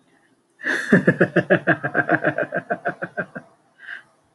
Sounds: Laughter